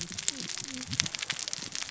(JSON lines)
{"label": "biophony, cascading saw", "recorder": "SoundTrap 600 or HydroMoth"}